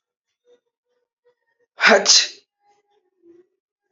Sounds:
Sneeze